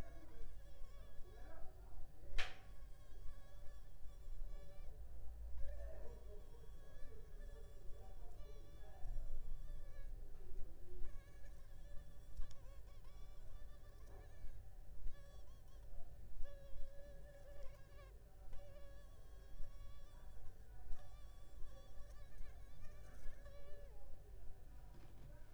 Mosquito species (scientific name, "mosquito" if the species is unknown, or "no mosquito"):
Culex pipiens complex